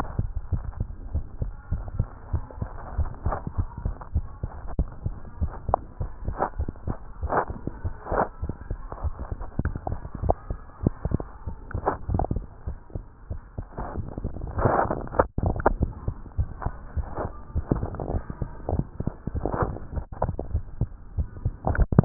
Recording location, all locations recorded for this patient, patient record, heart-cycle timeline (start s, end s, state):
tricuspid valve (TV)
aortic valve (AV)+pulmonary valve (PV)+tricuspid valve (TV)+mitral valve (MV)
#Age: Child
#Sex: Female
#Height: 102.0 cm
#Weight: 15.7 kg
#Pregnancy status: False
#Murmur: Present
#Murmur locations: aortic valve (AV)+mitral valve (MV)
#Most audible location: mitral valve (MV)
#Systolic murmur timing: Early-systolic
#Systolic murmur shape: Plateau
#Systolic murmur grading: I/VI
#Systolic murmur pitch: Low
#Systolic murmur quality: Blowing
#Diastolic murmur timing: nan
#Diastolic murmur shape: nan
#Diastolic murmur grading: nan
#Diastolic murmur pitch: nan
#Diastolic murmur quality: nan
#Outcome: Normal
#Campaign: 2015 screening campaign
0.00	0.86	unannotated
0.86	0.88	S2
0.88	1.10	diastole
1.10	1.24	S1
1.24	1.40	systole
1.40	1.52	S2
1.52	1.70	diastole
1.70	1.84	S1
1.84	1.94	systole
1.94	2.08	S2
2.08	2.32	diastole
2.32	2.46	S1
2.46	2.60	systole
2.60	2.70	S2
2.70	2.94	diastole
2.94	3.10	S1
3.10	3.24	systole
3.24	3.36	S2
3.36	3.56	diastole
3.56	3.68	S1
3.68	3.82	systole
3.82	3.96	S2
3.96	4.14	diastole
4.14	4.28	S1
4.28	4.42	systole
4.42	4.50	S2
4.50	4.74	diastole
4.74	4.88	S1
4.88	5.04	systole
5.04	5.18	S2
5.18	5.40	diastole
5.40	5.54	S1
5.54	5.66	systole
5.66	5.76	S2
5.76	6.00	diastole
6.00	6.12	S1
6.12	6.26	systole
6.26	6.38	S2
6.38	6.58	diastole
6.58	6.66	S1
6.66	6.86	systole
6.86	6.98	S2
6.98	7.20	diastole
7.20	7.32	S1
7.32	7.46	systole
7.46	7.57	S2
7.57	7.81	diastole
7.81	7.94	S1
7.94	8.12	systole
8.12	8.26	S2
8.26	8.40	diastole
8.40	8.54	S1
8.54	8.68	systole
8.68	8.82	S2
8.82	9.00	diastole
9.00	9.14	S1
9.14	9.28	systole
9.28	9.40	S2
9.40	9.60	diastole
9.60	9.74	S1
9.74	9.86	systole
9.86	10.00	S2
10.00	10.22	diastole
10.22	10.36	S1
10.36	10.48	systole
10.48	10.60	S2
10.60	10.83	diastole
10.83	10.94	S1
10.94	11.12	systole
11.12	11.24	S2
11.24	11.44	diastole
11.44	11.56	S1
11.56	11.72	systole
11.72	11.86	S2
11.86	12.10	diastole
12.10	22.05	unannotated